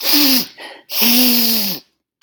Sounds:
Sniff